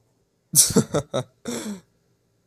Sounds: Laughter